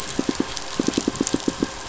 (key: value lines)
label: biophony, pulse
recorder: SoundTrap 500

label: anthrophony, boat engine
recorder: SoundTrap 500